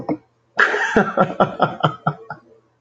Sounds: Laughter